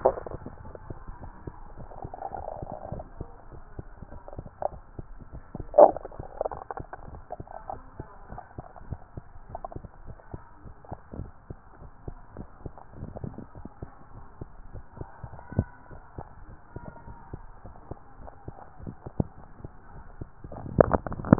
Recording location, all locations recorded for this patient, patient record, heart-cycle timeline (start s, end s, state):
tricuspid valve (TV)
aortic valve (AV)+pulmonary valve (PV)+tricuspid valve (TV)+mitral valve (MV)
#Age: Child
#Sex: Male
#Height: 114.0 cm
#Weight: 46.3 kg
#Pregnancy status: False
#Murmur: Absent
#Murmur locations: nan
#Most audible location: nan
#Systolic murmur timing: nan
#Systolic murmur shape: nan
#Systolic murmur grading: nan
#Systolic murmur pitch: nan
#Systolic murmur quality: nan
#Diastolic murmur timing: nan
#Diastolic murmur shape: nan
#Diastolic murmur grading: nan
#Diastolic murmur pitch: nan
#Diastolic murmur quality: nan
#Outcome: Normal
#Campaign: 2015 screening campaign
0.00	8.26	unannotated
8.26	8.30	diastole
8.30	8.40	S1
8.40	8.54	systole
8.54	8.64	S2
8.64	8.86	diastole
8.86	9.00	S1
9.00	9.16	systole
9.16	9.26	S2
9.26	9.50	diastole
9.50	9.62	S1
9.62	9.72	systole
9.72	9.84	S2
9.84	10.06	diastole
10.06	10.18	S1
10.18	10.32	systole
10.32	10.42	S2
10.42	10.66	diastole
10.66	10.76	S1
10.76	10.88	systole
10.88	10.98	S2
10.98	11.18	diastole
11.18	11.32	S1
11.32	11.46	systole
11.46	11.56	S2
11.56	11.82	diastole
11.82	11.92	S1
11.92	12.04	systole
12.04	12.18	S2
12.18	12.38	diastole
12.38	12.48	S1
12.48	12.62	systole
12.62	12.72	S2
12.72	12.96	diastole
12.96	13.14	S1
13.14	13.24	systole
13.24	13.36	S2
13.36	13.56	diastole
13.56	13.66	S1
13.66	13.78	systole
13.78	13.92	S2
13.92	14.16	diastole
14.16	14.26	S1
14.26	14.40	systole
14.40	14.48	S2
14.48	14.72	diastole
14.72	14.84	S1
14.84	14.98	systole
14.98	15.10	S2
15.10	15.34	diastole
15.34	15.44	S1
15.44	15.56	systole
15.56	15.70	S2
15.70	15.92	diastole
15.92	16.04	S1
16.04	16.14	systole
16.14	16.24	S2
16.24	16.48	diastole
16.48	16.58	S1
16.58	16.72	systole
16.72	16.84	S2
16.84	17.08	diastole
17.08	17.18	S1
17.18	17.30	systole
17.30	17.42	S2
17.42	17.66	diastole
17.66	17.76	S1
17.76	17.90	systole
17.90	17.98	S2
17.98	18.20	diastole
18.20	18.30	S1
18.30	18.44	systole
18.44	18.54	S2
18.54	18.82	diastole
18.82	18.96	S1
18.96	19.07	systole
19.07	21.39	unannotated